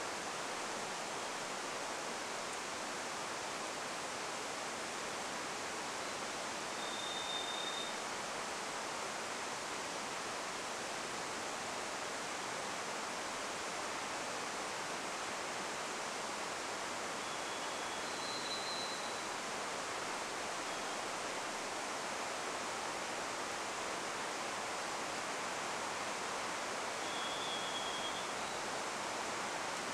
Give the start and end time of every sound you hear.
6s-8s: Varied Thrush song
16s-20s: Varied Thrush song
26s-30s: Varied Thrush song

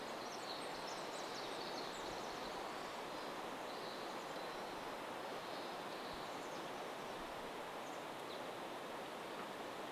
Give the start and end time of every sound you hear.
0s-8s: Pacific Wren song
4s-8s: Chestnut-backed Chickadee call
8s-10s: unidentified bird chip note

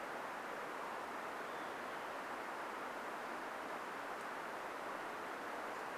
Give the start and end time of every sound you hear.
0s-2s: Olive-sided Flycatcher song

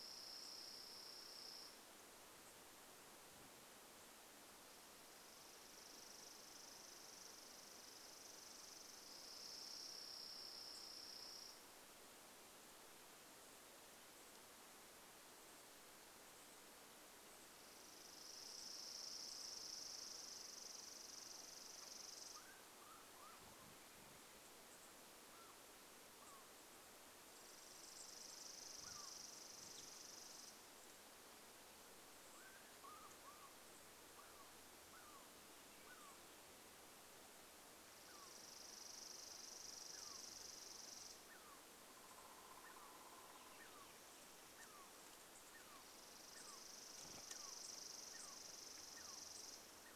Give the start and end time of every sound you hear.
0s-2s: Chipping Sparrow song
0s-4s: unidentified bird chip note
4s-12s: Chipping Sparrow song
8s-20s: unidentified bird chip note
16s-24s: Chipping Sparrow song
22s-30s: Douglas squirrel chirp
22s-34s: unidentified bird chip note
26s-32s: Chipping Sparrow song
32s-50s: Douglas squirrel chirp
38s-42s: Chipping Sparrow song
38s-42s: unidentified bird chip note
40s-44s: woodpecker drumming
44s-50s: Chipping Sparrow song
44s-50s: unidentified bird chip note

